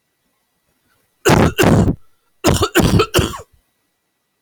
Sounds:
Cough